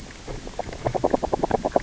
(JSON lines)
{"label": "biophony, grazing", "recorder": "SoundTrap 600 or HydroMoth"}